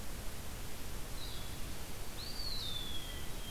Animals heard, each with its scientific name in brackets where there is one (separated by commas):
Eastern Wood-Pewee (Contopus virens), Hermit Thrush (Catharus guttatus), Blue-headed Vireo (Vireo solitarius)